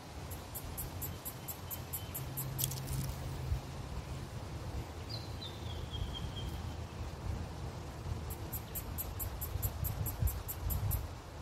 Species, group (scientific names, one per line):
Yoyetta celis
Cicadidae